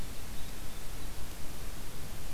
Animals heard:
forest ambience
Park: Marsh-Billings-Rockefeller National Historical Park